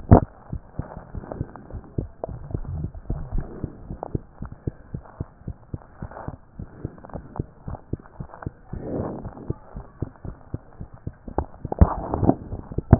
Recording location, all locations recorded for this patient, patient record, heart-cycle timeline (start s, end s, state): mitral valve (MV)
aortic valve (AV)+pulmonary valve (PV)+tricuspid valve (TV)+mitral valve (MV)
#Age: Child
#Sex: Female
#Height: 123.0 cm
#Weight: 25.3 kg
#Pregnancy status: False
#Murmur: Absent
#Murmur locations: nan
#Most audible location: nan
#Systolic murmur timing: nan
#Systolic murmur shape: nan
#Systolic murmur grading: nan
#Systolic murmur pitch: nan
#Systolic murmur quality: nan
#Diastolic murmur timing: nan
#Diastolic murmur shape: nan
#Diastolic murmur grading: nan
#Diastolic murmur pitch: nan
#Diastolic murmur quality: nan
#Outcome: Normal
#Campaign: 2014 screening campaign
0.00	3.84	unannotated
3.84	3.88	diastole
3.88	3.98	S1
3.98	4.12	systole
4.12	4.22	S2
4.22	4.40	diastole
4.40	4.52	S1
4.52	4.66	systole
4.66	4.74	S2
4.74	4.92	diastole
4.92	5.02	S1
5.02	5.18	systole
5.18	5.28	S2
5.28	5.46	diastole
5.46	5.56	S1
5.56	5.72	systole
5.72	5.82	S2
5.82	6.00	diastole
6.00	6.10	S1
6.10	6.28	systole
6.28	6.36	S2
6.36	6.58	diastole
6.58	6.68	S1
6.68	6.84	systole
6.84	6.92	S2
6.92	7.14	diastole
7.14	7.24	S1
7.24	7.38	systole
7.38	7.46	S2
7.46	7.66	diastole
7.66	7.78	S1
7.78	7.92	systole
7.92	8.00	S2
8.00	8.20	diastole
8.20	8.28	S1
8.28	8.44	systole
8.44	8.54	S2
8.54	8.74	diastole
8.74	12.99	unannotated